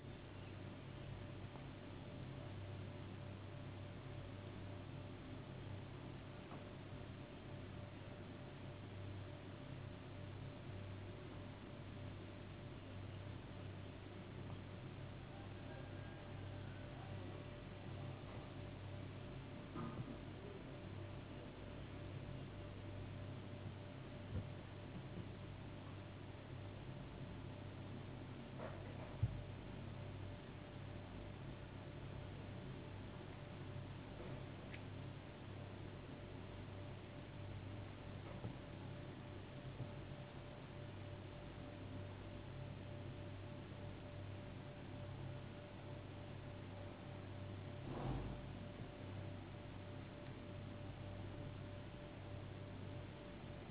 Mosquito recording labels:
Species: no mosquito; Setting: insect culture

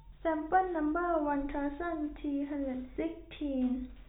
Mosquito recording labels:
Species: no mosquito; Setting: cup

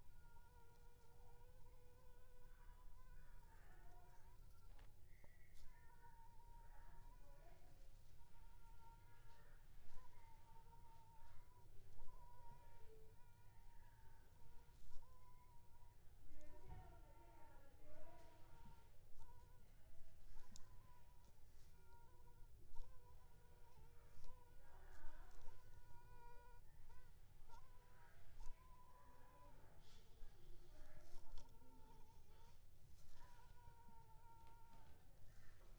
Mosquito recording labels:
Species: Anopheles funestus s.l.; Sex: female; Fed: unfed; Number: one; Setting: cup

